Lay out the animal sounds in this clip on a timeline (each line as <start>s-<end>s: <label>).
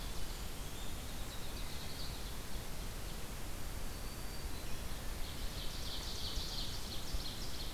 0.0s-1.2s: Blackburnian Warbler (Setophaga fusca)
0.4s-2.7s: unknown mammal
3.5s-4.9s: Black-throated Green Warbler (Setophaga virens)
5.2s-7.7s: Ovenbird (Seiurus aurocapilla)